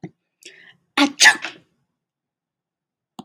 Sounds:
Sneeze